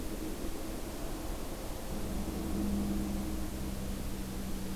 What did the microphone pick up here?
forest ambience